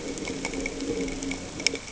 {"label": "anthrophony, boat engine", "recorder": "HydroMoth"}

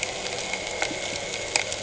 {"label": "anthrophony, boat engine", "recorder": "HydroMoth"}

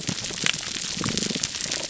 {"label": "biophony, pulse", "recorder": "SoundTrap 300"}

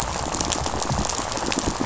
{"label": "biophony, rattle", "recorder": "SoundTrap 500"}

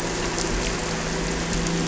{"label": "anthrophony, boat engine", "recorder": "SoundTrap 300"}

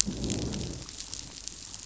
{"label": "biophony, growl", "recorder": "SoundTrap 500"}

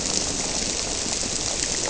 {"label": "biophony", "recorder": "SoundTrap 300"}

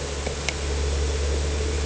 {"label": "anthrophony, boat engine", "recorder": "HydroMoth"}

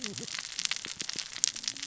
{"label": "biophony, cascading saw", "recorder": "SoundTrap 600 or HydroMoth"}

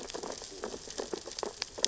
{"label": "biophony, sea urchins (Echinidae)", "recorder": "SoundTrap 600 or HydroMoth"}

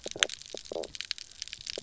{"label": "biophony, knock croak", "recorder": "SoundTrap 300"}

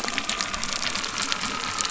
{"label": "anthrophony, boat engine", "recorder": "SoundTrap 300"}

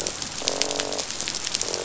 {"label": "biophony, croak", "recorder": "SoundTrap 500"}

